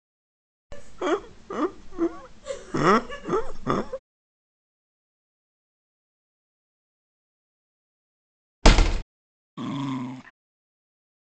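At 0.7 seconds, there is laughter. After that, at 8.62 seconds, a window closes. Next, at 9.57 seconds, a dog can be heard.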